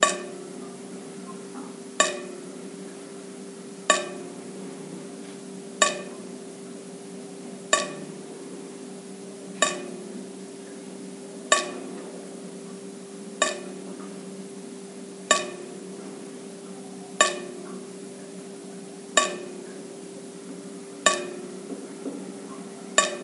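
A single metallic clank sounds. 0:00.0 - 0:00.4
A single metallic clank sounds. 0:01.9 - 0:02.4
A single metallic clank sounds. 0:03.9 - 0:04.4
A single metallic clank sounds. 0:05.8 - 0:06.2
A single metallic clank sounds. 0:07.7 - 0:08.1
A single metallic clank sounds. 0:09.6 - 0:10.0
A single metallic clank sounds. 0:11.5 - 0:11.8
A single metallic clank sounds. 0:13.4 - 0:13.7
A single metallic clank sounds. 0:15.3 - 0:15.5
A single metallic clank sounds. 0:17.2 - 0:17.5
A single metallic clank sounds. 0:19.1 - 0:19.5
A single metallic clank sounds. 0:21.0 - 0:21.6
Two quiet, dull knocks on wood. 0:21.6 - 0:22.3
A single metallic clank sounds. 0:22.9 - 0:23.2

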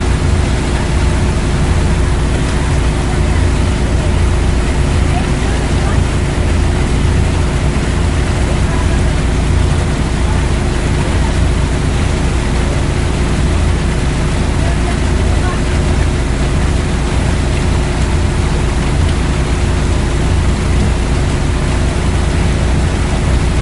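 A loud continuous engine sound outdoors. 0:00.0 - 0:23.6
People are talking outdoors in the background. 0:00.0 - 0:23.6

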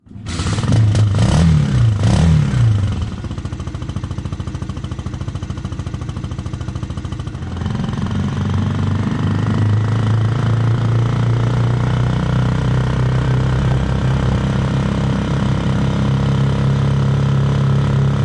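An engine starts. 0:00.0 - 0:03.2
An engine is idling loudly. 0:03.2 - 0:07.6
An engine is running loudly. 0:07.6 - 0:18.2

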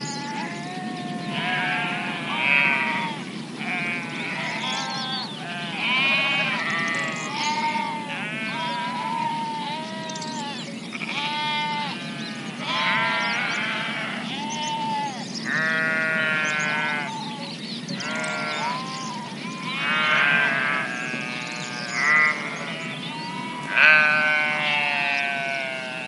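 Multiple sheep bleating in the distance. 0:00.0 - 0:02.2
A bird chirps faintly in the distance. 0:00.0 - 0:26.1
Multiple sheep bleating loudly in a repetitive harsh pattern outdoors. 0:02.3 - 0:03.2
Multiple sheep bleating loudly in the distance. 0:03.4 - 0:05.4
A sheep bleats loudly in a continuous, harsh, drawn-out pattern. 0:05.6 - 0:07.2
Multiple sheep bleating loudly in the distance. 0:07.3 - 0:12.3
Multiple sheep bleating loudly in a continuous, harsh, drawn-out pattern in an outdoor environment. 0:12.5 - 0:14.5
Multiple sheep bleating in the distance. 0:14.2 - 0:15.3
A sheep bleats loudly in a continuous, harsh, drawn-out pattern. 0:15.3 - 0:17.2
Multiple sheep bleating in the distance. 0:17.1 - 0:17.9
A sheep bleats continuously in a drawn-out and harsh pattern outdoors. 0:17.9 - 0:18.8
Multiple sheep bleating in the distance. 0:18.8 - 0:19.6
Multiple sheep bleating loudly in a continuous, harsh, drawn-out pattern. 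0:19.6 - 0:21.0
Multiple sheep bleating in the distance. 0:20.9 - 0:21.8
A sheep bleats loudly and abruptly. 0:21.7 - 0:22.5
Multiple sheep bleating in the distance. 0:22.4 - 0:23.7
A sheep bleats loudly in a continuous, drawn-out, and harsh pattern in an outdoor environment. 0:23.6 - 0:25.9

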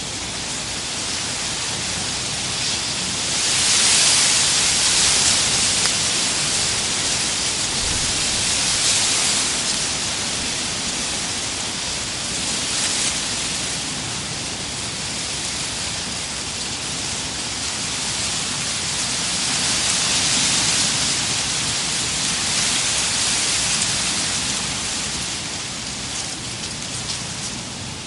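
Wind blowing unevenly with a grainy texture. 0:00.0 - 0:28.1

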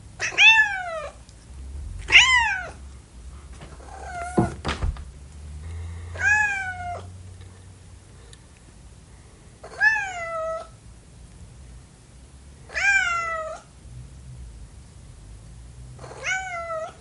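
A cat meowing in a high pitch. 0:00.1 - 0:01.2
An aggressive, high-pitched cat meowing. 0:02.0 - 0:02.7
A cat is gently purring. 0:03.6 - 0:04.9
An object falls to the floor. 0:04.4 - 0:05.1
A cat meowing in a high pitch. 0:06.1 - 0:07.1
A cat is softly meowing. 0:09.6 - 0:10.8
A cat meowing in a high pitch. 0:12.7 - 0:13.7
A cat is softly meowing. 0:16.0 - 0:17.0
A cat meowing in a high pitch. 0:16.0 - 0:17.0

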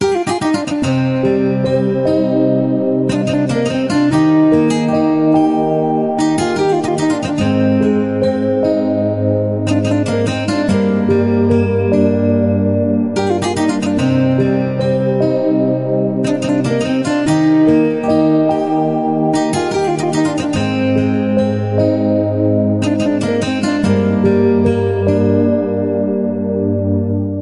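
A melody plays steadily with a rhythmic pattern. 0:00.0 - 0:27.4

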